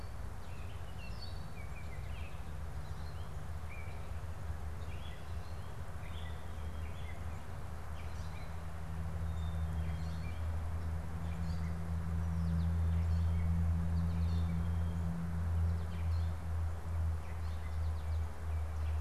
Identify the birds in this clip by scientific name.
Dumetella carolinensis, Icterus galbula, Spinus tristis